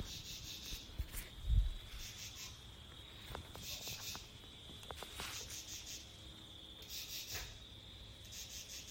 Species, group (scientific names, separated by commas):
Pterophylla camellifolia, Orthoptera